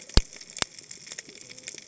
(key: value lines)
label: biophony, cascading saw
recorder: HydroMoth